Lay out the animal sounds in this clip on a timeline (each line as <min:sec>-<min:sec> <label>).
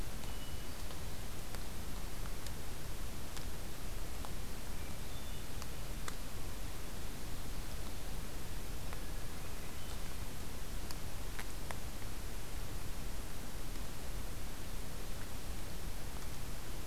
0:00.2-0:01.2 Hermit Thrush (Catharus guttatus)
0:04.7-0:05.6 Hermit Thrush (Catharus guttatus)
0:08.9-0:10.3 Hermit Thrush (Catharus guttatus)